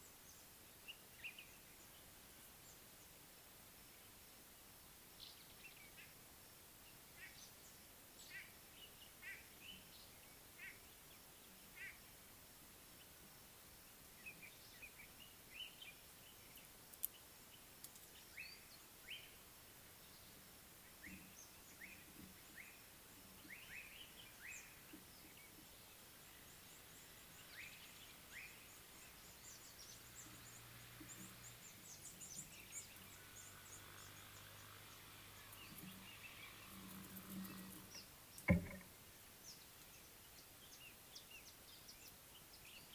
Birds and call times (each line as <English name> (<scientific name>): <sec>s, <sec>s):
Common Bulbul (Pycnonotus barbatus): 1.2s, 14.9s
White-bellied Go-away-bird (Corythaixoides leucogaster): 9.3s
Slate-colored Boubou (Laniarius funebris): 19.1s, 23.7s
Red-cheeked Cordonbleu (Uraeginthus bengalus): 29.3s, 32.4s
Speckled Mousebird (Colius striatus): 37.9s